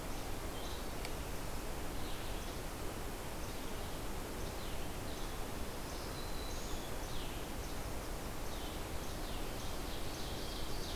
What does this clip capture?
Least Flycatcher, Red-eyed Vireo, Black-throated Green Warbler, Yellow-rumped Warbler, Ovenbird